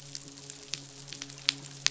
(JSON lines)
{"label": "biophony, midshipman", "recorder": "SoundTrap 500"}